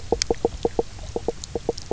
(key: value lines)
label: biophony, knock croak
recorder: SoundTrap 300